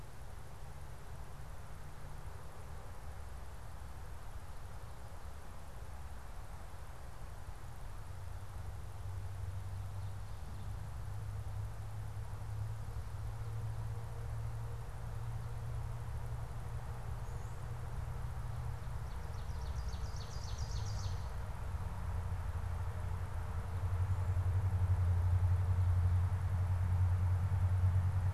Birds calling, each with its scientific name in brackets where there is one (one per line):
Ovenbird (Seiurus aurocapilla)